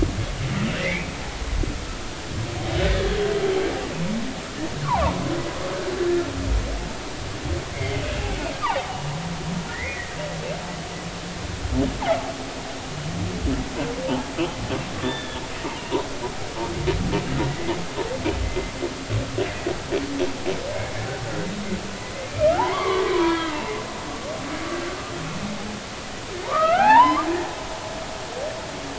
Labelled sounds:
0.8	1.1	humpback whale, 1.7 to 2.6 kHz
4.9	5.1	humpback whale, 0.80 to 1.2 kHz
7.7	8.0	humpback whale, 2.0 to 2.4 kHz
8.6	10.2	humpback whale, 0.80 to 2.9 kHz
15.0	15.9	humpback whale, 0.83 to 3.6 kHz
18.4	19.7	humpback whale, 1.9 to 2.1 kHz
20.7	21.0	humpback whale, 2.1 to 2.2 kHz
22.3	23.6	humpback whale, 0.80 to 3.5 kHz
26.4	27.3	humpback whale, 0.80 to 2.7 kHz

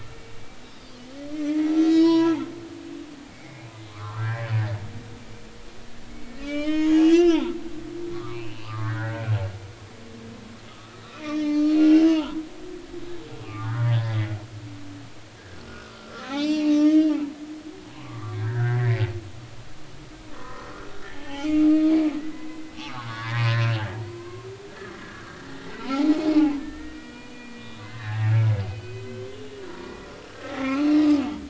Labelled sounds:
0.2	0.4	humpback whale, 2.7 to 2.8 kHz
0.8	2.4	humpback whale, 0.93 to 6.7 kHz
2.9	4.5	humpback whale, 0.93 to 4.4 kHz
6.1	7.5	humpback whale, 0.80 to 6.9 kHz
8.1	9.2	humpback whale, 0.99 to 3.0 kHz
10.7	12.4	humpback whale, 0.83 to 5.9 kHz
13.4	14.3	humpback whale, 0.83 to 2.9 kHz
15.7	17.1	humpback whale, 0.80 to 5.9 kHz
17.9	19.0	humpback whale, 0.90 to 2.4 kHz
20.3	23.6	humpback whale, 0.80 to 5.7 kHz
24.1	24.5	humpback whale, 0.96 to 1.1 kHz
25.0	25.4	humpback whale, 1.1 to 1.8 kHz
26.6	29.1	humpback whale, 0.80 to 3.9 kHz
29.8	31.0	humpback whale, 1.0 to 2.8 kHz

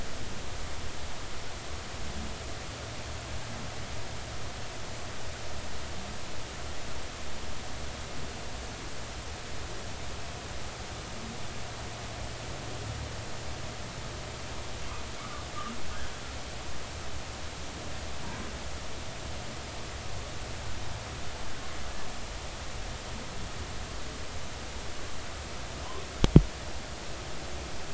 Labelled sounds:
15.2	15.5	humpback whale, 1.1 to 1.3 kHz

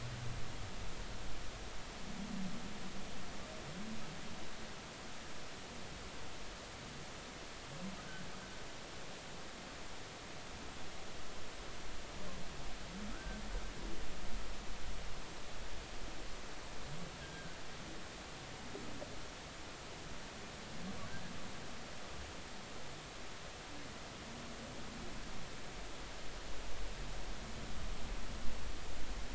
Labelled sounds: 8.0	8.2	humpback whale, 1.4 to 1.6 kHz
13.1	13.4	humpback whale, 1.2 to 1.6 kHz
17.2	17.6	humpback whale, 1.5 to 1.7 kHz

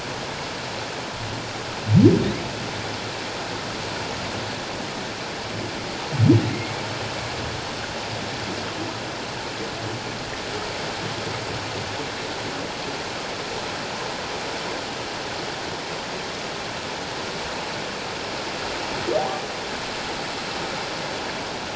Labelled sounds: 6.5	6.8	humpback whale, 2.1 to 2.2 kHz
19.2	19.4	humpback whale, 0.78 to 0.91 kHz

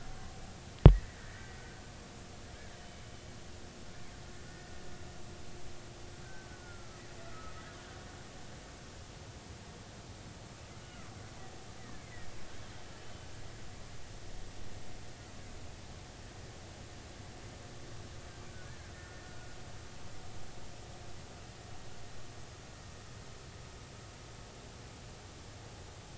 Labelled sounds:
1.2	1.6	killer whale, Bigg's (transient), 1.7 to 2.0 kHz
6.2	7.6	killer whale, Bigg's (transient), 1.2 to 1.7 kHz
10.8	11.1	killer whale, Bigg's (transient), 1.3 to 1.5 kHz
11.8	12.3	killer whale, Bigg's (transient), 1.7 to 2.3 kHz
18.7	19.5	killer whale, Bigg's (transient), 1.4 to 1.8 kHz

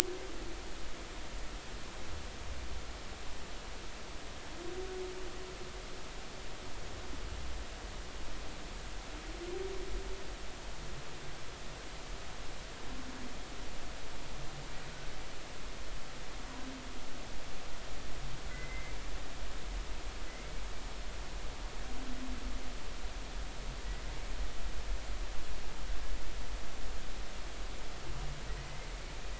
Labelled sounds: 18.5	19.0	humpback whale, 1.9 to 2.2 kHz
20.3	20.5	humpback whale, 2.0 to 2.2 kHz

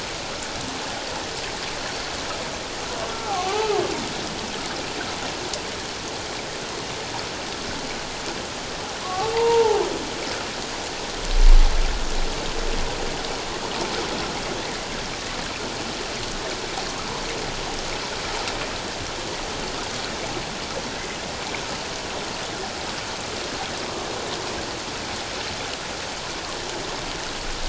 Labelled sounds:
3.1	3.8	humpback whale, 0.78 to 1.4 kHz
9.0	9.8	humpback whale, 0.78 to 1.3 kHz

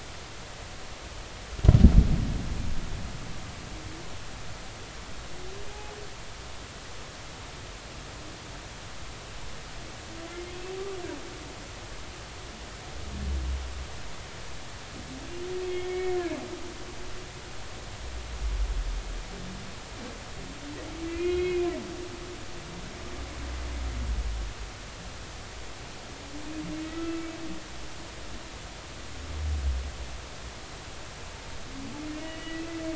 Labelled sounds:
15.6	16.2	humpback whale, 1.8 to 3.4 kHz
21.1	21.7	humpback whale, 2.0 to 4.0 kHz
26.8	27.1	humpback whale, 1.9 to 2.1 kHz
32.1	32.7	humpback whale, 1.9 to 3.0 kHz

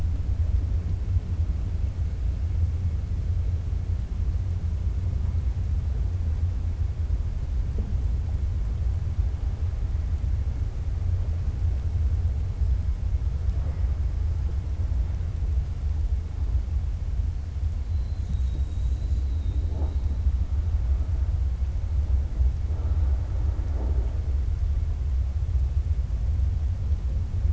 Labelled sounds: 18.8	19.6	killer whale, 3.6 to 4.9 kHz

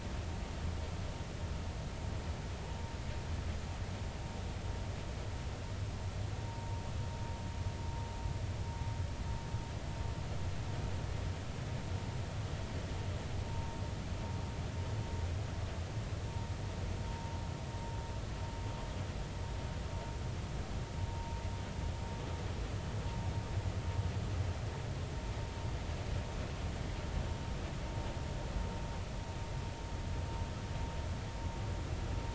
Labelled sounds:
6.5	6.8	vessel noise, 0.90 to 0.99 kHz
13.5	13.8	vessel noise, 0.90 to 1.0 kHz
17.1	17.4	vessel noise, 0.90 to 0.99 kHz
21.1	21.4	vessel noise, 0.86 to 1.0 kHz

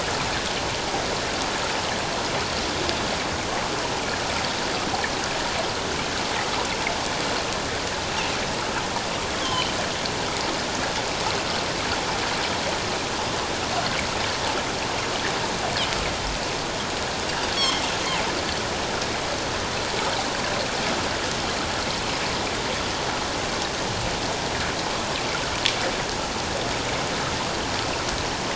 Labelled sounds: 8.1	8.4	Pacific white-sided dolphin, 2.5 to 2.9 kHz
9.4	9.7	Pacific white-sided dolphin, 2.9 to 3.5 kHz
17.5	17.8	Pacific white-sided dolphin, 2.1 to 3.4 kHz

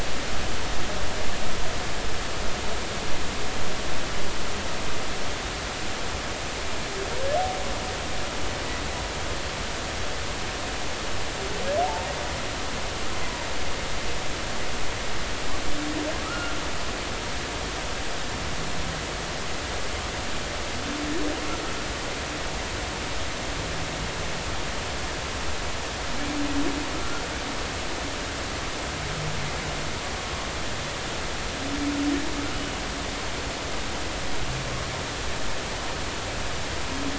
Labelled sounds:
11.8	12.1	humpback whale, 0.80 to 1.0 kHz
16.3	16.6	humpback whale, 1.2 to 1.5 kHz

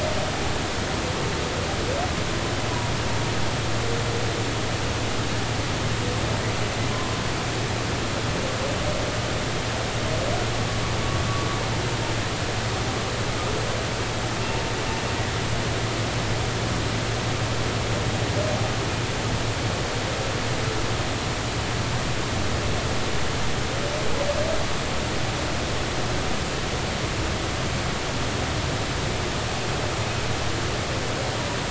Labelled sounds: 6.9	7.2	humpback whale, 0.96 to 1.1 kHz

